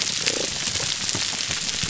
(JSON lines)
{"label": "biophony", "recorder": "SoundTrap 300"}